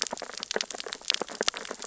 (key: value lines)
label: biophony, sea urchins (Echinidae)
recorder: SoundTrap 600 or HydroMoth